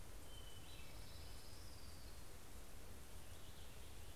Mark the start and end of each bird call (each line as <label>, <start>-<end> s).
Hermit Thrush (Catharus guttatus), 0.0-2.4 s
Orange-crowned Warbler (Leiothlypis celata), 0.1-3.1 s